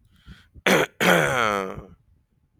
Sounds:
Throat clearing